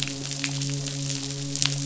{"label": "biophony, midshipman", "recorder": "SoundTrap 500"}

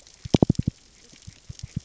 {"label": "biophony, knock", "recorder": "SoundTrap 600 or HydroMoth"}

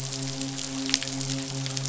{"label": "biophony, midshipman", "recorder": "SoundTrap 500"}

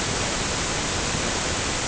{"label": "ambient", "recorder": "HydroMoth"}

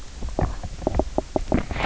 {"label": "biophony, knock croak", "recorder": "SoundTrap 300"}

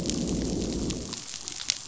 {"label": "biophony, growl", "recorder": "SoundTrap 500"}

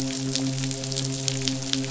{"label": "biophony, midshipman", "recorder": "SoundTrap 500"}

